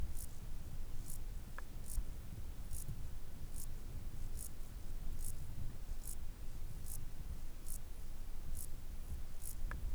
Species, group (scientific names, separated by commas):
Euchorthippus elegantulus, Orthoptera